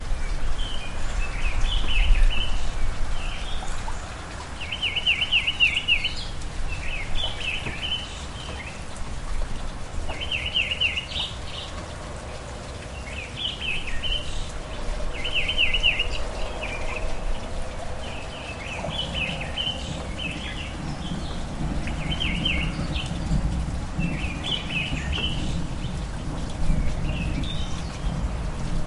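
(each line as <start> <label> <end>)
0.0 Nature sounds with a babbling brook and birds chirping. 28.9
4.7 Birdsong with a rhythmic pattern. 6.2
10.0 Birdsong with a rhythmic pattern. 11.3
15.3 Birdsong with a rhythmic pattern. 16.3
21.8 Birdsong with a rhythmic pattern. 22.9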